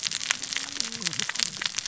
{"label": "biophony, cascading saw", "recorder": "SoundTrap 600 or HydroMoth"}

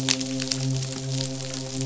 {"label": "biophony, midshipman", "recorder": "SoundTrap 500"}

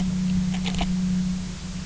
{"label": "anthrophony, boat engine", "recorder": "SoundTrap 300"}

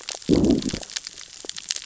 {"label": "biophony, growl", "recorder": "SoundTrap 600 or HydroMoth"}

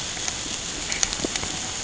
{"label": "ambient", "recorder": "HydroMoth"}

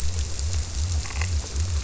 {"label": "biophony", "recorder": "SoundTrap 300"}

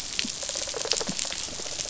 {"label": "biophony, rattle response", "recorder": "SoundTrap 500"}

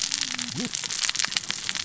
{"label": "biophony, cascading saw", "recorder": "SoundTrap 600 or HydroMoth"}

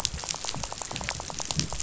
{"label": "biophony, rattle", "recorder": "SoundTrap 500"}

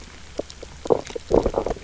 {"label": "biophony, low growl", "recorder": "SoundTrap 300"}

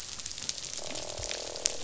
{"label": "biophony, croak", "recorder": "SoundTrap 500"}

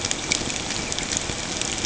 {"label": "ambient", "recorder": "HydroMoth"}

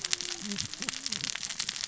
{"label": "biophony, cascading saw", "recorder": "SoundTrap 600 or HydroMoth"}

